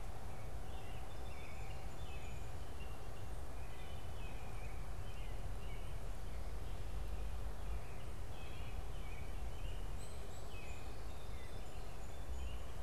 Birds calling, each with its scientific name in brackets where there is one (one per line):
Song Sparrow (Melospiza melodia)
American Robin (Turdus migratorius)